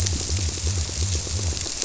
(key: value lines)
label: biophony
recorder: SoundTrap 300